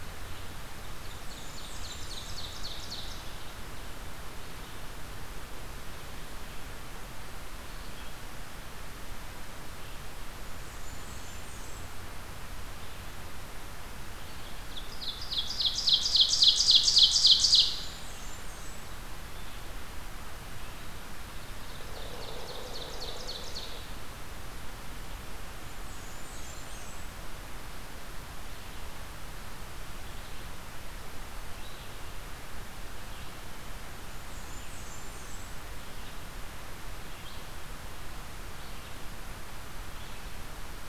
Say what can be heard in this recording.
Red-eyed Vireo, Ovenbird, Blackburnian Warbler